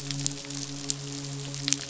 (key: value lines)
label: biophony, midshipman
recorder: SoundTrap 500